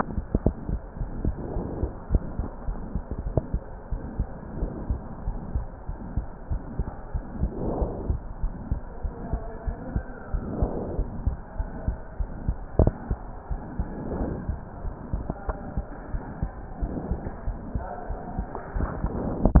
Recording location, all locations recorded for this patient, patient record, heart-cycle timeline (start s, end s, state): pulmonary valve (PV)
aortic valve (AV)+pulmonary valve (PV)+tricuspid valve (TV)+mitral valve (MV)
#Age: Child
#Sex: Male
#Height: 126.0 cm
#Weight: 24.7 kg
#Pregnancy status: False
#Murmur: Present
#Murmur locations: mitral valve (MV)+pulmonary valve (PV)+tricuspid valve (TV)
#Most audible location: mitral valve (MV)
#Systolic murmur timing: Holosystolic
#Systolic murmur shape: Plateau
#Systolic murmur grading: II/VI
#Systolic murmur pitch: Medium
#Systolic murmur quality: Blowing
#Diastolic murmur timing: nan
#Diastolic murmur shape: nan
#Diastolic murmur grading: nan
#Diastolic murmur pitch: nan
#Diastolic murmur quality: nan
#Outcome: Abnormal
#Campaign: 2015 screening campaign
0.00	3.62	unannotated
3.62	3.90	diastole
3.90	4.00	S1
4.00	4.18	systole
4.18	4.28	S2
4.28	4.58	diastole
4.58	4.72	S1
4.72	4.88	systole
4.88	5.02	S2
5.02	5.26	diastole
5.26	5.40	S1
5.40	5.54	systole
5.54	5.66	S2
5.66	5.88	diastole
5.88	5.98	S1
5.98	6.16	systole
6.16	6.26	S2
6.26	6.50	diastole
6.50	6.64	S1
6.64	6.78	systole
6.78	6.88	S2
6.88	7.14	diastole
7.14	7.24	S1
7.24	7.40	systole
7.40	7.52	S2
7.52	7.74	diastole
7.74	7.90	S1
7.90	8.08	systole
8.08	8.22	S2
8.22	8.42	diastole
8.42	8.54	S1
8.54	8.70	systole
8.70	8.80	S2
8.80	9.04	diastole
9.04	9.14	S1
9.14	9.32	systole
9.32	9.42	S2
9.42	9.66	diastole
9.66	9.76	S1
9.76	9.94	systole
9.94	10.04	S2
10.04	10.32	diastole
10.32	10.42	S1
10.42	10.60	systole
10.60	10.70	S2
10.70	10.96	diastole
10.96	11.08	S1
11.08	11.22	systole
11.22	11.36	S2
11.36	11.58	diastole
11.58	11.70	S1
11.70	11.86	systole
11.86	11.98	S2
11.98	12.20	diastole
12.20	12.30	S1
12.30	12.44	systole
12.44	12.58	S2
12.58	12.80	diastole
12.80	12.96	S1
12.96	13.10	systole
13.10	13.20	S2
13.20	13.50	diastole
13.50	13.62	S1
13.62	13.78	systole
13.78	13.88	S2
13.88	14.16	diastole
14.16	14.32	S1
14.32	14.48	systole
14.48	14.60	S2
14.60	14.84	diastole
14.84	14.94	S1
14.94	15.12	systole
15.12	15.24	S2
15.24	15.48	diastole
15.48	15.58	S1
15.58	15.76	systole
15.76	15.84	S2
15.84	16.10	diastole
16.10	16.20	S1
16.20	16.38	systole
16.38	16.50	S2
16.50	16.78	diastole
16.78	16.90	S1
16.90	17.06	systole
17.06	17.20	S2
17.20	17.46	diastole
17.46	17.58	S1
17.58	17.76	systole
17.76	17.86	S2
17.86	18.10	diastole
18.10	18.18	S1
18.18	18.36	systole
18.36	18.48	S2
18.48	18.76	diastole
18.76	18.90	S1
18.90	19.02	systole
19.02	19.14	S2
19.14	19.44	diastole
19.44	19.60	unannotated